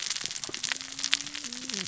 {"label": "biophony, cascading saw", "recorder": "SoundTrap 600 or HydroMoth"}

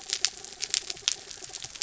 {"label": "anthrophony, mechanical", "recorder": "SoundTrap 300"}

